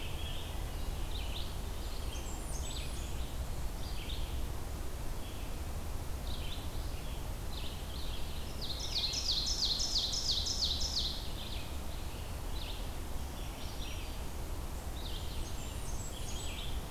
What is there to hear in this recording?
Scarlet Tanager, Red-eyed Vireo, Blackburnian Warbler, Ovenbird